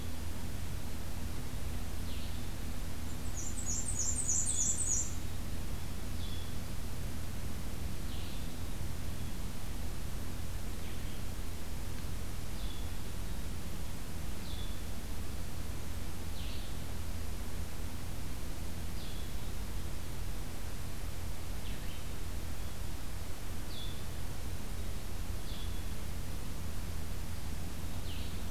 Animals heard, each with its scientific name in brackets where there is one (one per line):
Black-and-white Warbler (Mniotilta varia)
Black-capped Chickadee (Poecile atricapillus)
Blue-headed Vireo (Vireo solitarius)